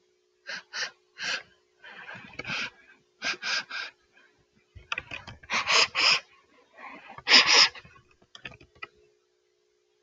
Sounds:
Sniff